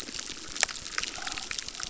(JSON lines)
{"label": "biophony, crackle", "recorder": "SoundTrap 600"}